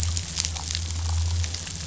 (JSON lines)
{"label": "anthrophony, boat engine", "recorder": "SoundTrap 500"}